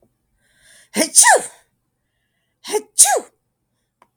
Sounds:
Sneeze